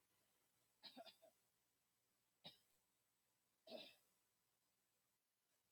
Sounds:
Throat clearing